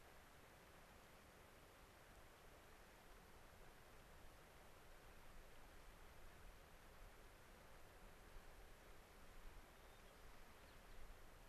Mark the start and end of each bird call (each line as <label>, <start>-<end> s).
White-crowned Sparrow (Zonotrichia leucophrys), 9.7-11.0 s